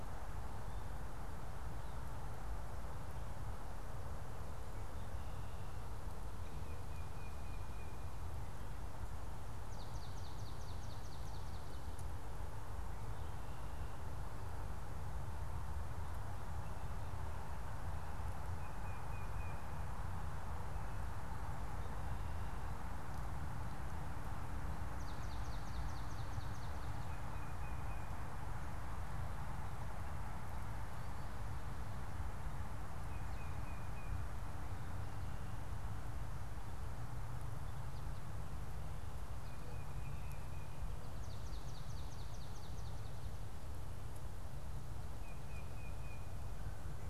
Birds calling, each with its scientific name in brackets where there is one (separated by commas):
Tufted Titmouse (Baeolophus bicolor), Swamp Sparrow (Melospiza georgiana)